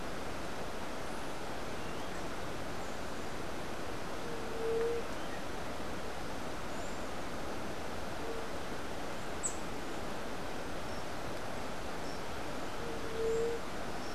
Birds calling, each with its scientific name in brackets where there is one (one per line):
White-tipped Dove (Leptotila verreauxi)